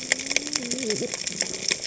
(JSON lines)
{"label": "biophony, cascading saw", "recorder": "HydroMoth"}